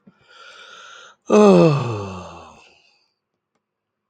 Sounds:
Sigh